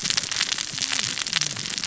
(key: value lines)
label: biophony, cascading saw
recorder: SoundTrap 600 or HydroMoth